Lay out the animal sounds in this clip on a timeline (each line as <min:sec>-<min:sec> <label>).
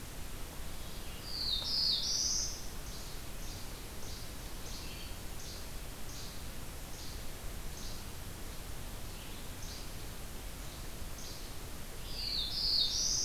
0:00.0-0:13.2 Red-eyed Vireo (Vireo olivaceus)
0:01.2-0:02.8 Black-throated Blue Warbler (Setophaga caerulescens)
0:02.7-0:08.0 Least Flycatcher (Empidonax minimus)
0:09.5-0:09.9 Least Flycatcher (Empidonax minimus)
0:11.1-0:11.4 Least Flycatcher (Empidonax minimus)
0:11.8-0:13.2 Black-throated Blue Warbler (Setophaga caerulescens)